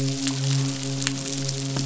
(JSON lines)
{"label": "biophony, midshipman", "recorder": "SoundTrap 500"}